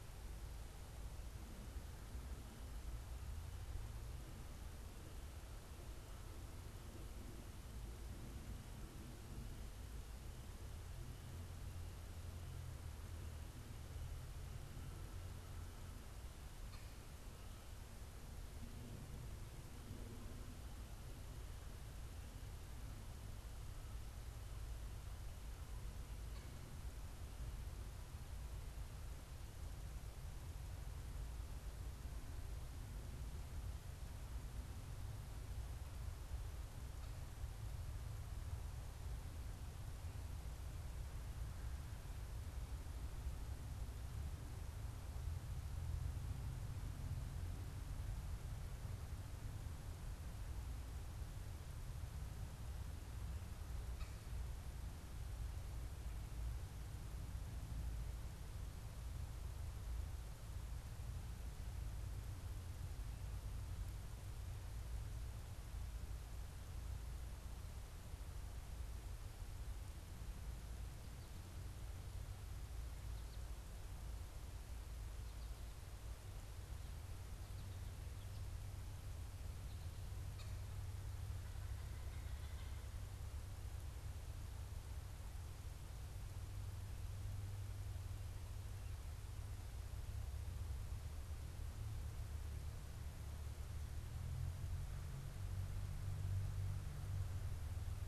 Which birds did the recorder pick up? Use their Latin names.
Accipiter cooperii, Spinus tristis